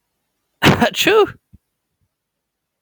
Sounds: Sneeze